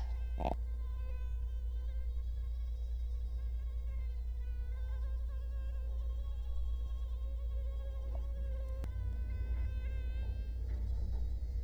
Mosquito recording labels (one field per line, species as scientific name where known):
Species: Culex quinquefasciatus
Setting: cup